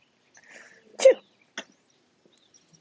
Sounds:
Sneeze